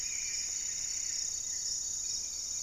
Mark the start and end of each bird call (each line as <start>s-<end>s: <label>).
0.0s-0.5s: Hauxwell's Thrush (Turdus hauxwelli)
0.0s-1.4s: Plumbeous Antbird (Myrmelastes hyperythrus)
0.0s-1.9s: Goeldi's Antbird (Akletos goeldii)
0.0s-2.6s: Gray-fronted Dove (Leptotila rufaxilla)
0.0s-2.6s: Plumbeous Pigeon (Patagioenas plumbea)
1.9s-2.6s: unidentified bird